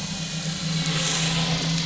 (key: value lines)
label: anthrophony, boat engine
recorder: SoundTrap 500